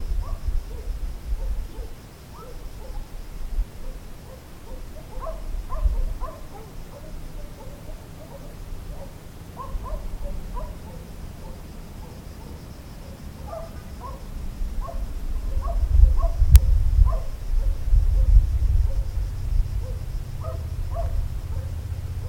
Is there a man yelling?
no